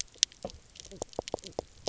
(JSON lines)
{"label": "biophony, knock croak", "recorder": "SoundTrap 300"}